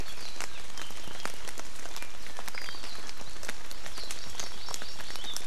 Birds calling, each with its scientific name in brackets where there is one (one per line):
Hawaii Amakihi (Chlorodrepanis virens)